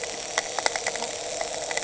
{"label": "anthrophony, boat engine", "recorder": "HydroMoth"}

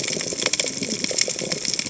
{"label": "biophony, cascading saw", "recorder": "HydroMoth"}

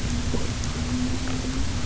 {"label": "anthrophony, boat engine", "recorder": "SoundTrap 300"}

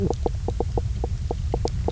{"label": "biophony, knock croak", "recorder": "SoundTrap 300"}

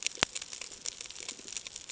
{"label": "ambient", "recorder": "HydroMoth"}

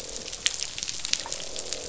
{"label": "biophony, croak", "recorder": "SoundTrap 500"}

